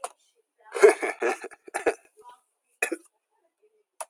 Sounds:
Laughter